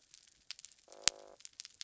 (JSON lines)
{"label": "biophony", "recorder": "SoundTrap 300"}